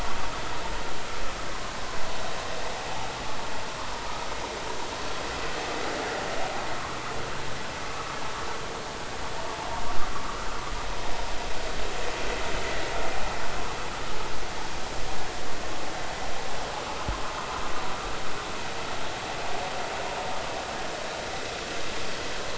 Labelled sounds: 7.9	8.2	vessel noise, 1.1 to 1.3 kHz

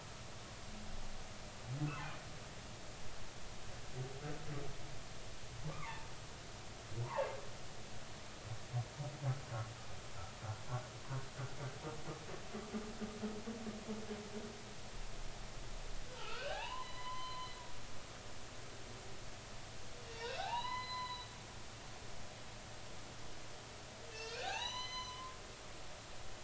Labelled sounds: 1.8	2.1	humpback whale, 0.99 to 1.6 kHz
5.7	6.1	humpback whale, 0.83 to 1.3 kHz
7.0	7.3	humpback whale, 0.83 to 1.2 kHz
16.2	17.5	humpback whale, 0.80 to 6.0 kHz
20.1	21.3	humpback whale, 0.80 to 4.1 kHz
24.1	26.4	humpback whale, 0.80 to 6.4 kHz

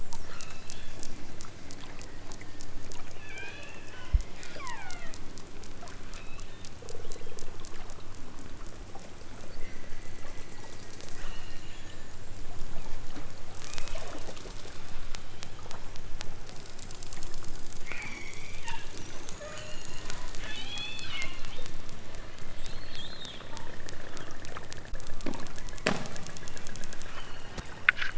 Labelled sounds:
0.2	1.1	killer whale, southern Alaska resident, 0.87 to 4.4 kHz
3.2	3.9	killer whale, southern Alaska resident, 1.1 to 5.1 kHz
4.4	5.2	killer whale, southern Alaska resident, 0.37 to 5.4 kHz
6.1	6.7	killer whale, southern Alaska resident, 0.92 to 4.4 kHz
9.5	10.6	killer whale, southern Alaska resident, 1.7 to 6.7 kHz
11.1	12.1	killer whale, southern Alaska resident, 1.5 to 4.8 kHz
13.6	14.3	killer whale, southern Alaska resident, 1.6 to 4.7 kHz
17.9	18.7	killer whale, southern Alaska resident, 0.83 to 8.0 kHz
19.5	21.7	killer whale, southern Alaska resident, 1.3 to 8.0 kHz

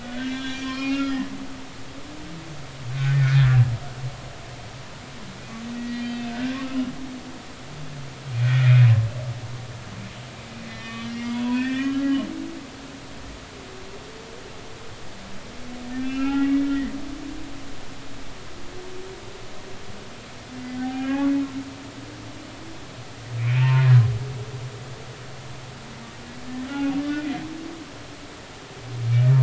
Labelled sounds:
0.0	1.2	humpback whale, 0.99 to 5.0 kHz
2.9	3.6	humpback whale, 1.4 to 1.9 kHz
5.8	6.6	humpback whale, 1.4 to 4.6 kHz
8.4	8.9	humpback whale, 1.4 to 2.5 kHz
10.7	12.2	humpback whale, 1.1 to 3.1 kHz
15.9	16.7	humpback whale, 1.3 to 2.8 kHz
17.2	17.5	humpback whale, 1.6 to 1.8 kHz
20.8	21.3	humpback whale, 0.80 to 3.1 kHz
23.4	23.9	humpback whale, 0.86 to 2.9 kHz
26.7	27.3	humpback whale, 0.80 to 3.0 kHz

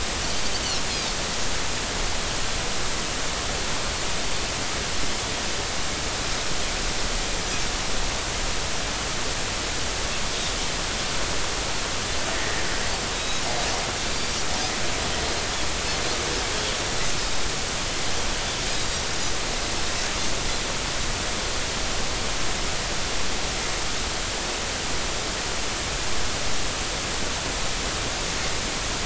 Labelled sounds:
0.4	0.6	Pacific white-sided dolphin, 4.5 to 4.8 kHz
12.3	13.4	Pacific white-sided dolphin, 1.7 to 3.9 kHz

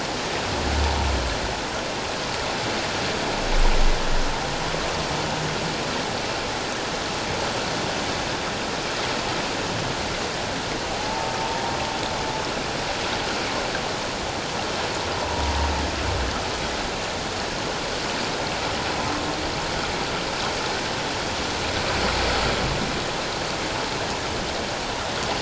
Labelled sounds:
10.9	11.3	humpback whale, 0.78 to 0.94 kHz
15.2	15.5	humpback whale, 0.91 to 1.0 kHz

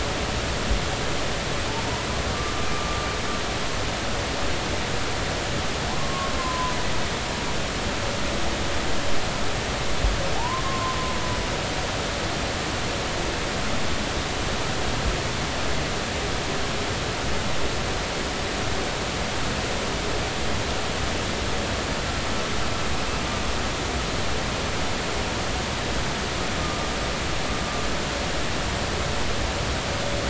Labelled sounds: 6.0	6.7	humpback whale, 0.96 to 1.2 kHz
10.4	11.0	humpback whale, 0.80 to 1.1 kHz
26.6	26.9	humpback whale, 1.1 to 1.3 kHz

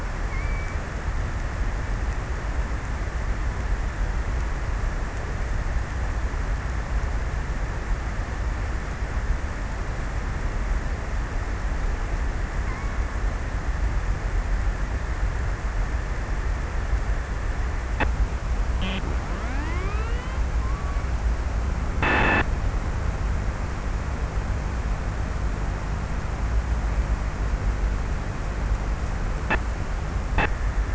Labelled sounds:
0.1	1.2	killer whale, offshore, 1.8 to 2.6 kHz
11.9	13.5	killer whale, offshore, 0.49 to 2.4 kHz

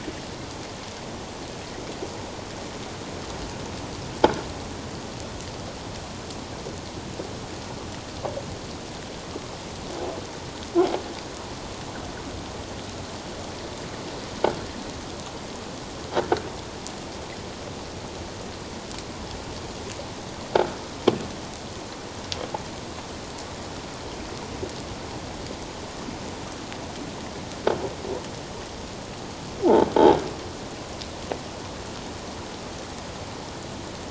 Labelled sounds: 30.0	30.3	croaking sound likely from a nearby submerged object, 1.5 to 1.7 kHz

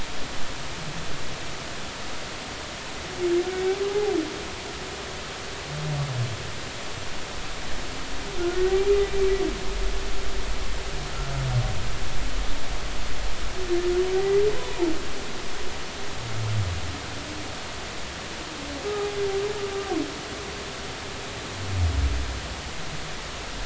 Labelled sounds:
8.5	9.3	humpback whale, 1.8 to 2.4 kHz
14.1	14.9	humpback whale, 0.83 to 2.1 kHz
18.9	19.2	humpback whale, 0.80 to 0.86 kHz

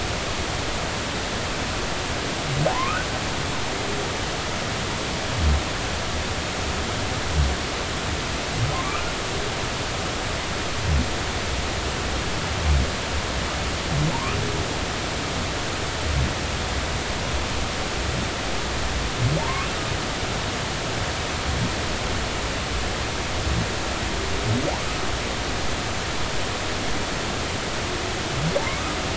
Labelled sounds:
2.7	3.0	humpback whale, 0.80 to 1.3 kHz
8.7	9.1	humpback whale, 0.99 to 1.5 kHz
14.1	14.4	humpback whale, 0.83 to 1.4 kHz
19.4	19.7	humpback whale, 0.83 to 1.2 kHz

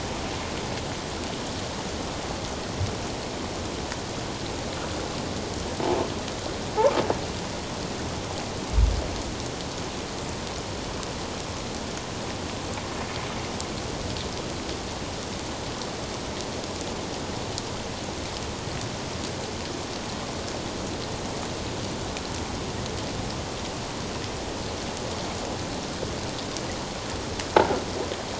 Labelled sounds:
27.6	27.8	croaking sound likely from a nearby submerged object, 1.3 to 1.6 kHz

